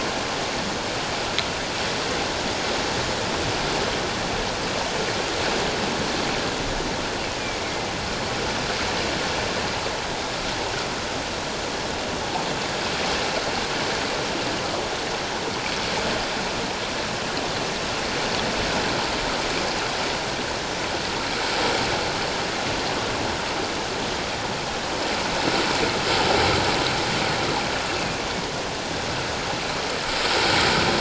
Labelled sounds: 7.2	7.9	killer whale, northern resident, A clan, AA subclan, A04 pod, 2.0 to 2.8 kHz
27.9	28.2	killer whale, northern resident, A clan, AA subclan, 2.4 to 2.8 kHz

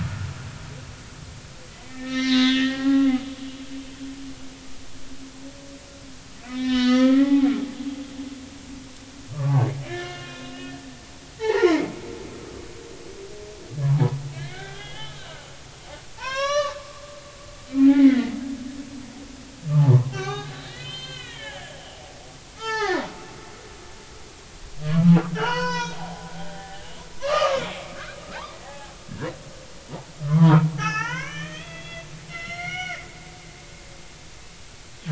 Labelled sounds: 1.7	3.1	humpback whale, 0.80 to 5.9 kHz
6.5	7.5	humpback whale, 0.80 to 5.5 kHz
9.3	12.7	humpback whale, 0.80 to 4.2 kHz
13.8	15.2	humpback whale, 0.80 to 3.5 kHz
16.2	16.8	humpback whale, 0.83 to 6.5 kHz
17.8	18.4	humpback whale, 1.7 to 2.3 kHz
19.7	21.8	humpback whale, 0.80 to 5.2 kHz
22.6	23.9	humpback whale, 0.80 to 6.7 kHz
25.3	26.8	humpback whale, 0.80 to 6.5 kHz
27.2	28.0	humpback whale, 0.96 to 3.2 kHz
28.5	29.3	humpback whale, 0.80 to 2.0 kHz
30.2	33.0	humpback whale, 0.80 to 6.2 kHz
33.6	33.9	humpback whale, 5.6 to 6.0 kHz

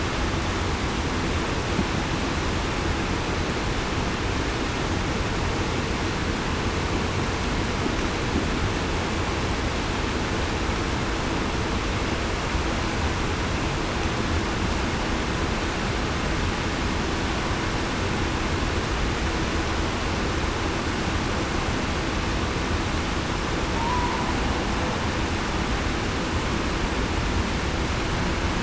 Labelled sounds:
23.8	24.1	humpback whale, 0.89 to 1.0 kHz

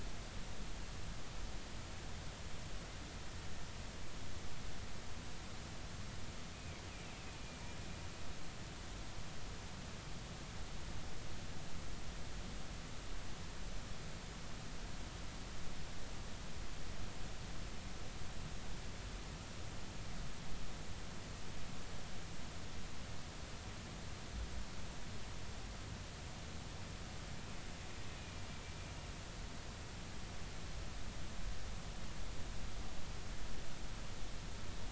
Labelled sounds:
6.5	6.8	killer whale, Bigg's (transient), 2.1 to 2.6 kHz

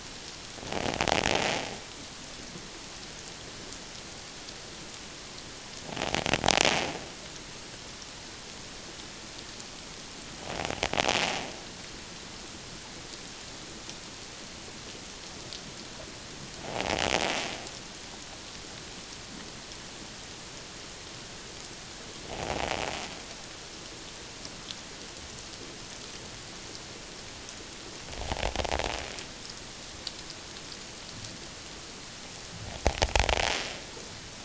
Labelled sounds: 16.7	17.0	invertebrate grinding on or near the hydrophone, 0.78 to 0.97 kHz
22.3	22.7	invertebrate grinding on or near the hydrophone, 0.78 to 0.94 kHz

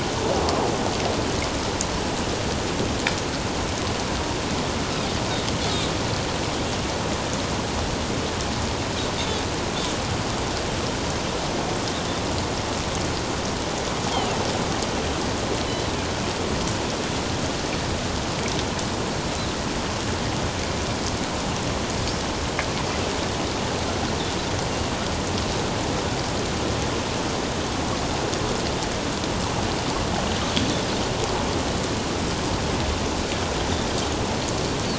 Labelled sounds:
14.1	14.4	Pacific white-sided dolphin, 2.6 to 3.3 kHz

